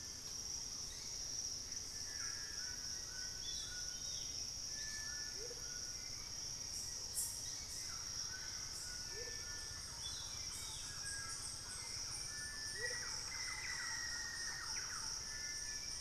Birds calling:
Amazonian Motmot (Momotus momota), White-throated Toucan (Ramphastos tucanus), Black-faced Antthrush (Formicarius analis), Hauxwell's Thrush (Turdus hauxwelli), White-bellied Tody-Tyrant (Hemitriccus griseipectus), Thrush-like Wren (Campylorhynchus turdinus), Plain-winged Antshrike (Thamnophilus schistaceus)

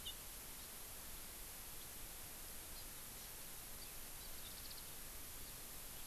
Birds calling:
Warbling White-eye (Zosterops japonicus), Hawaii Amakihi (Chlorodrepanis virens)

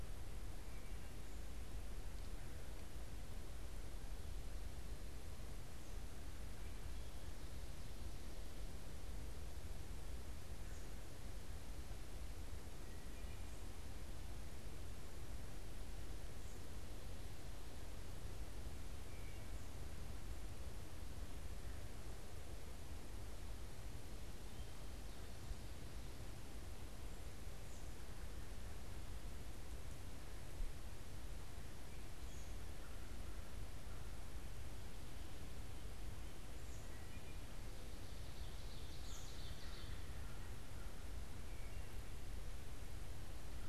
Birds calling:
Ovenbird (Seiurus aurocapilla), American Robin (Turdus migratorius), Wood Thrush (Hylocichla mustelina), American Crow (Corvus brachyrhynchos)

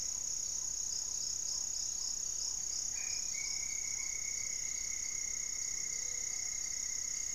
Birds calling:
Black-tailed Trogon (Trogon melanurus), Gray-fronted Dove (Leptotila rufaxilla), Great Antshrike (Taraba major), Black-faced Antthrush (Formicarius analis)

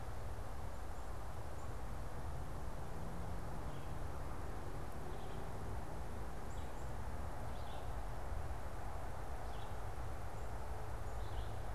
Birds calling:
Red-eyed Vireo (Vireo olivaceus), Black-capped Chickadee (Poecile atricapillus)

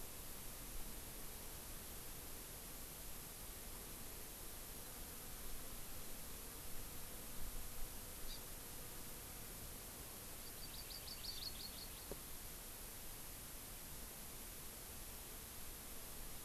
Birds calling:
Hawaii Amakihi (Chlorodrepanis virens)

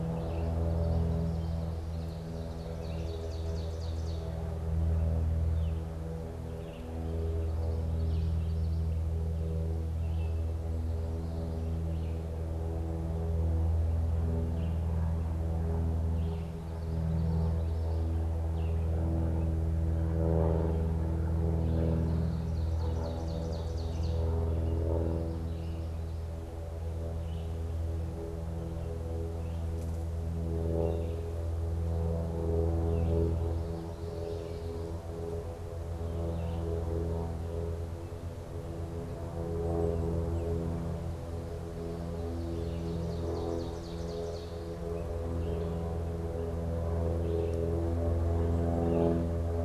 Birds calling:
Ovenbird (Seiurus aurocapilla), Red-eyed Vireo (Vireo olivaceus), Common Yellowthroat (Geothlypis trichas)

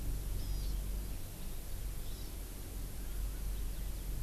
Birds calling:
Hawaii Amakihi (Chlorodrepanis virens)

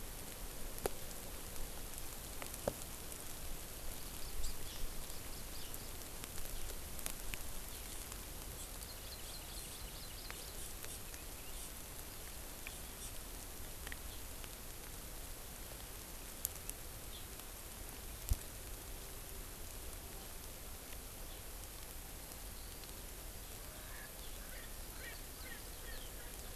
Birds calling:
Hawaii Amakihi (Chlorodrepanis virens), Erckel's Francolin (Pternistis erckelii)

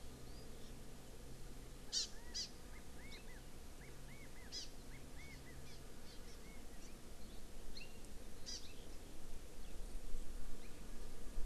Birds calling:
California Quail (Callipepla californica), Hawaii Amakihi (Chlorodrepanis virens)

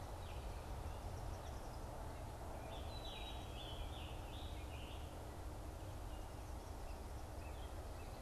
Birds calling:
Black-capped Chickadee (Poecile atricapillus), Eastern Kingbird (Tyrannus tyrannus), Scarlet Tanager (Piranga olivacea)

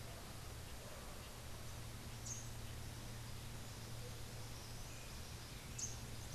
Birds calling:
Rufous-capped Warbler (Basileuterus rufifrons)

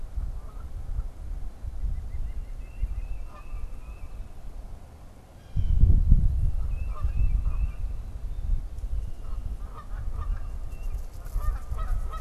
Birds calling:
White-breasted Nuthatch (Sitta carolinensis), Tufted Titmouse (Baeolophus bicolor), Blue Jay (Cyanocitta cristata), Canada Goose (Branta canadensis)

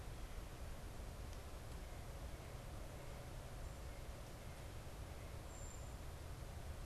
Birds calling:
unidentified bird

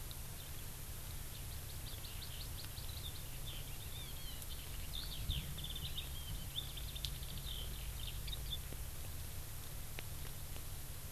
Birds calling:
Hawaii Amakihi (Chlorodrepanis virens), Eurasian Skylark (Alauda arvensis)

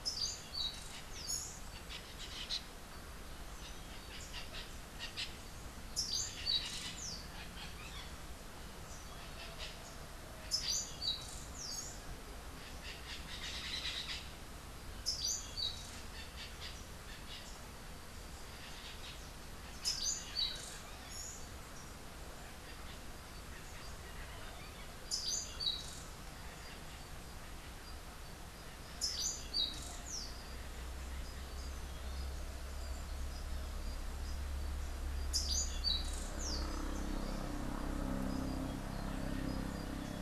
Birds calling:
Orange-billed Nightingale-Thrush (Catharus aurantiirostris), White-fronted Parrot (Amazona albifrons)

